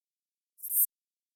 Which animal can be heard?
Synephippius obvius, an orthopteran